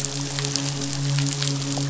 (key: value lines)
label: biophony, midshipman
recorder: SoundTrap 500